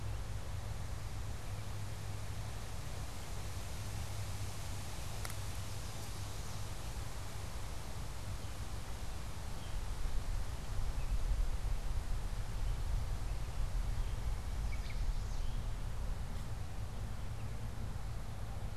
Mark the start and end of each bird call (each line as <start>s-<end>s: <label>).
14.3s-15.7s: Chestnut-sided Warbler (Setophaga pensylvanica)